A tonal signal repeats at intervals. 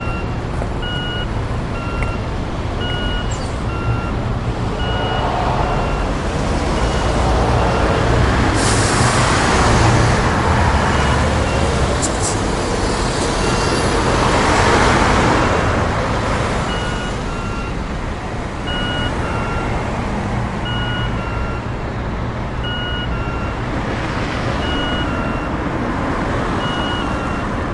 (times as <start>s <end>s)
0.0s 8.5s, 10.8s 12.1s, 13.5s 14.0s, 16.7s 27.7s